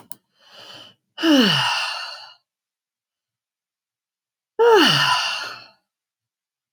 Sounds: Sigh